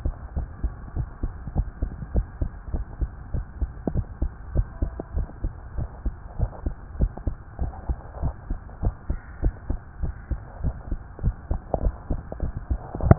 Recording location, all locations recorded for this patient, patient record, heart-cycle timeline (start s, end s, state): tricuspid valve (TV)
aortic valve (AV)+pulmonary valve (PV)+tricuspid valve (TV)+mitral valve (MV)
#Age: Child
#Sex: Female
#Height: 137.0 cm
#Weight: 28.2 kg
#Pregnancy status: False
#Murmur: Absent
#Murmur locations: nan
#Most audible location: nan
#Systolic murmur timing: nan
#Systolic murmur shape: nan
#Systolic murmur grading: nan
#Systolic murmur pitch: nan
#Systolic murmur quality: nan
#Diastolic murmur timing: nan
#Diastolic murmur shape: nan
#Diastolic murmur grading: nan
#Diastolic murmur pitch: nan
#Diastolic murmur quality: nan
#Outcome: Abnormal
#Campaign: 2015 screening campaign
0.00	0.33	unannotated
0.33	0.48	S1
0.48	0.62	systole
0.62	0.76	S2
0.76	0.96	diastole
0.96	1.08	S1
1.08	1.22	systole
1.22	1.34	S2
1.34	1.52	diastole
1.52	1.68	S1
1.68	1.82	systole
1.82	1.94	S2
1.94	2.12	diastole
2.12	2.26	S1
2.26	2.40	systole
2.40	2.52	S2
2.52	2.72	diastole
2.72	2.86	S1
2.86	3.00	systole
3.00	3.10	S2
3.10	3.32	diastole
3.32	3.46	S1
3.46	3.60	systole
3.60	3.70	S2
3.70	3.88	diastole
3.88	4.04	S1
4.04	4.20	systole
4.20	4.32	S2
4.32	4.52	diastole
4.52	4.66	S1
4.66	4.80	systole
4.80	4.94	S2
4.94	5.14	diastole
5.14	5.28	S1
5.28	5.42	systole
5.42	5.52	S2
5.52	5.76	diastole
5.76	5.88	S1
5.88	6.04	systole
6.04	6.16	S2
6.16	6.38	diastole
6.38	6.50	S1
6.50	6.64	systole
6.64	6.76	S2
6.76	6.98	diastole
6.98	7.12	S1
7.12	7.26	systole
7.26	7.38	S2
7.38	7.60	diastole
7.60	7.74	S1
7.74	7.88	systole
7.88	7.98	S2
7.98	8.20	diastole
8.20	8.34	S1
8.34	8.50	systole
8.50	8.60	S2
8.60	8.82	diastole
8.82	8.94	S1
8.94	9.10	systole
9.10	9.20	S2
9.20	9.42	diastole
9.42	9.54	S1
9.54	9.68	systole
9.68	9.80	S2
9.80	10.02	diastole
10.02	10.16	S1
10.16	10.30	systole
10.30	10.40	S2
10.40	10.62	diastole
10.62	10.76	S1
10.76	10.92	systole
10.92	11.02	S2
11.02	11.22	diastole
11.22	11.36	S1
11.36	11.46	systole
11.46	11.58	S2
11.58	11.78	diastole
11.78	11.94	S1
11.94	12.06	systole
12.06	12.20	S2
12.20	12.40	diastole
12.40	12.56	S1
12.56	12.70	systole
12.70	12.82	S2
12.82	13.00	diastole
13.00	13.15	S1
13.15	13.18	unannotated